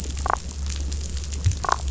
{"label": "biophony, damselfish", "recorder": "SoundTrap 500"}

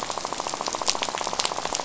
{"label": "biophony, rattle", "recorder": "SoundTrap 500"}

